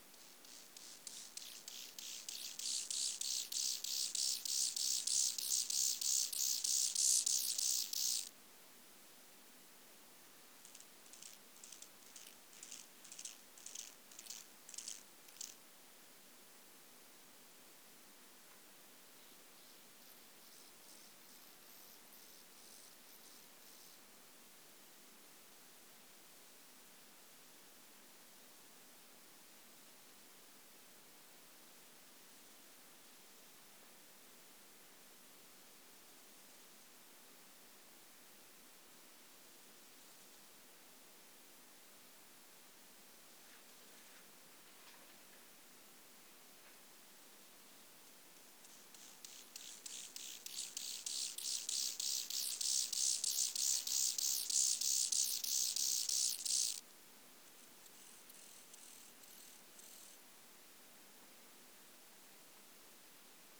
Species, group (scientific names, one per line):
Chorthippus mollis
Orthoptera